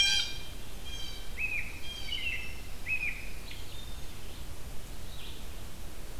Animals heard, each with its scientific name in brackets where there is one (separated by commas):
Red-eyed Vireo (Vireo olivaceus), American Robin (Turdus migratorius), Blue Jay (Cyanocitta cristata), Blue-headed Vireo (Vireo solitarius)